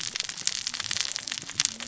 {"label": "biophony, cascading saw", "recorder": "SoundTrap 600 or HydroMoth"}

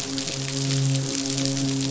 {"label": "biophony, midshipman", "recorder": "SoundTrap 500"}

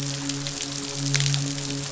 {"label": "biophony, midshipman", "recorder": "SoundTrap 500"}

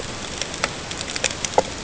{"label": "ambient", "recorder": "HydroMoth"}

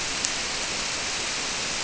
{"label": "biophony", "recorder": "SoundTrap 300"}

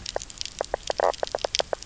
{"label": "biophony, knock croak", "recorder": "SoundTrap 300"}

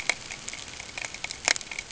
{"label": "ambient", "recorder": "HydroMoth"}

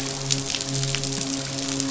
{"label": "biophony, midshipman", "recorder": "SoundTrap 500"}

